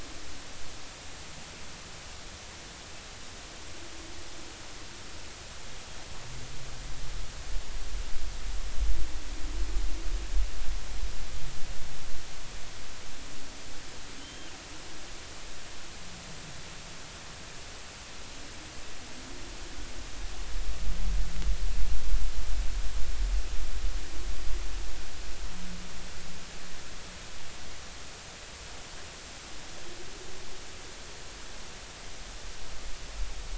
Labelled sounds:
14.2	14.5	killer whale, 3.0 to 3.2 kHz

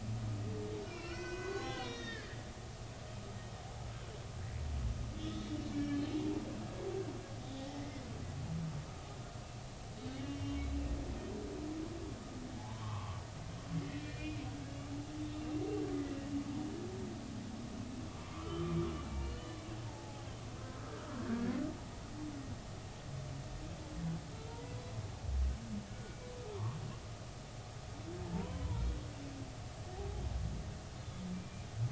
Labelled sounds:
0.8	2.4	humpback whale, 0.96 to 6.6 kHz
5.2	6.2	humpback whale, 1.7 to 4.3 kHz
7.5	8.0	humpback whale, 0.80 to 2.2 kHz
10.3	10.6	humpback whale, 3.0 to 3.2 kHz
12.6	15.4	humpback whale, 0.80 to 3.7 kHz
18.3	19.3	humpback whale, 1.0 to 2.4 kHz
19.9	21.6	humpback whale, 0.80 to 1.9 kHz
24.3	24.7	humpback whale, 0.90 to 1.4 kHz
26.5	26.8	humpback whale, 0.86 to 1.3 kHz
28.3	28.8	humpback whale, 0.83 to 1.1 kHz
31.3	31.7	humpback whale, 2.3 to 2.5 kHz

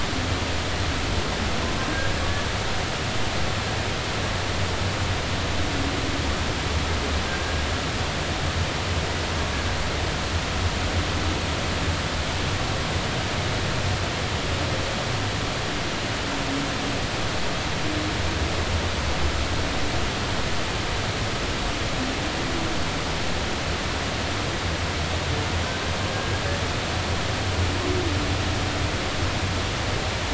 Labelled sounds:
7.4	7.6	humpback whale, 1.6 to 1.7 kHz

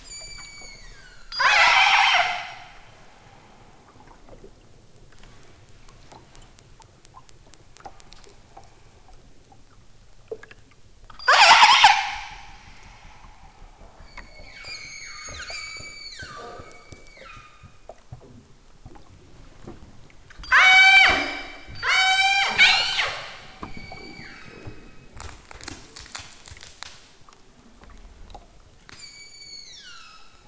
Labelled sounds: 0.1	2.7	killer whale, southern Alaska resident, 0.28 to 8.0 kHz
11.1	12.5	killer whale, southern Alaska resident, 0.37 to 8.0 kHz
14.0	18.0	killer whale, southern Alaska resident, 0.87 to 8.0 kHz
20.4	23.3	killer whale, southern Alaska resident, 0.23 to 8.0 kHz
23.6	24.8	killer whale, southern Alaska resident, 0.83 to 7.2 kHz
28.9	30.4	killer whale, southern Alaska resident, 0.97 to 8.0 kHz

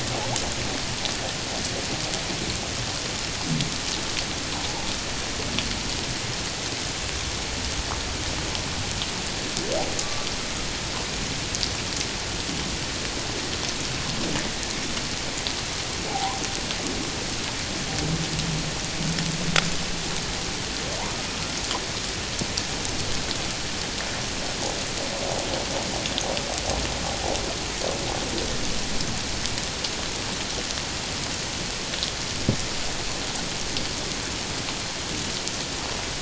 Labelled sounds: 10.0	10.3	humpback whale, 1.1 to 1.2 kHz
16.1	16.4	humpback whale, 0.78 to 1.1 kHz

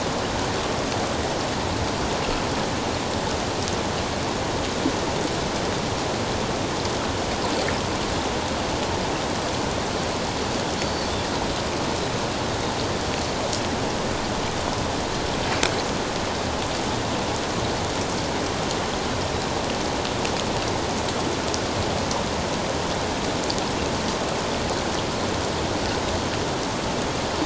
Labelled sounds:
10.8	11.1	Pacific white-sided dolphin, 4.3 to 4.7 kHz

